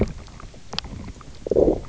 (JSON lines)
{"label": "biophony, knock croak", "recorder": "SoundTrap 300"}